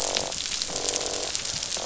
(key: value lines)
label: biophony, croak
recorder: SoundTrap 500